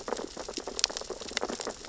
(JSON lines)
{"label": "biophony, sea urchins (Echinidae)", "recorder": "SoundTrap 600 or HydroMoth"}